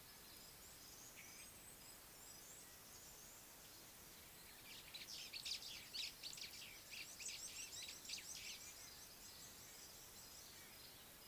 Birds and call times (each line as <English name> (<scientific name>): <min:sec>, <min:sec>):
White-browed Sparrow-Weaver (Plocepasser mahali): 0:06.0
Red-cheeked Cordonbleu (Uraeginthus bengalus): 0:09.2